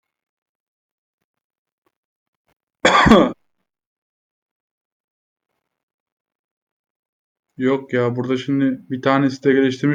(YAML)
expert_labels:
- quality: ok
  cough_type: unknown
  dyspnea: false
  wheezing: false
  stridor: false
  choking: false
  congestion: false
  nothing: true
  diagnosis: healthy cough
  severity: pseudocough/healthy cough
age: 27
gender: male
respiratory_condition: false
fever_muscle_pain: false
status: healthy